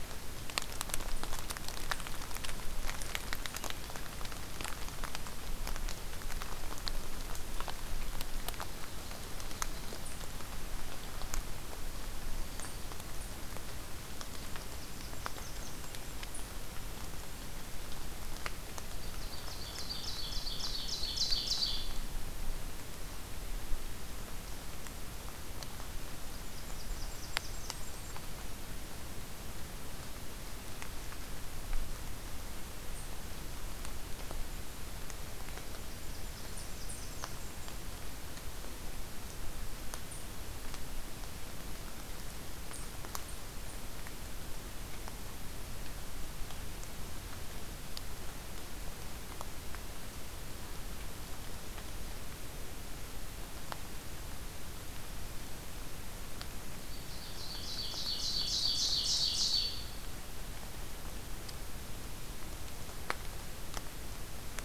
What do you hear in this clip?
Black-throated Green Warbler, Blackburnian Warbler, Ovenbird